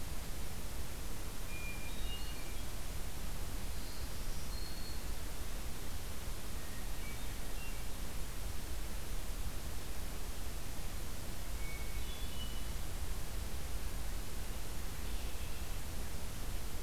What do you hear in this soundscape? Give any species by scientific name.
Catharus guttatus, Setophaga virens, Turdus migratorius